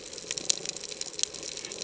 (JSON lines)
{"label": "ambient", "recorder": "HydroMoth"}